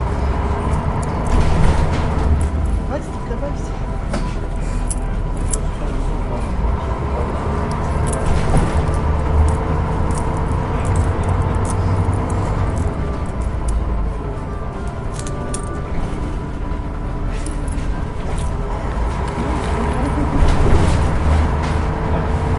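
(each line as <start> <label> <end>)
0.0 A heavy vehicle accelerates. 2.7
0.0 Ambient noises on a public transport bus. 22.6
2.5 Music playing faintly in the background. 22.6
2.8 A person is talking. 3.9
3.9 A heavy vehicle shifts gears. 4.8
6.6 A heavy vehicle is accelerating. 12.9
18.2 A heavy vehicle is accelerating. 22.5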